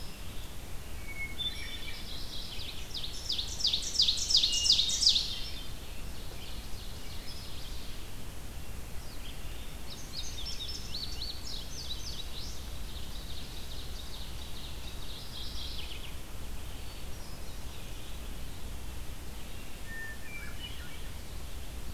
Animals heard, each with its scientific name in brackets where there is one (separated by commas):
Mourning Warbler (Geothlypis philadelphia), Hairy Woodpecker (Dryobates villosus), Indigo Bunting (Passerina cyanea), Hermit Thrush (Catharus guttatus), Red-eyed Vireo (Vireo olivaceus), Ovenbird (Seiurus aurocapilla)